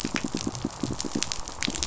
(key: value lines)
label: biophony, pulse
recorder: SoundTrap 500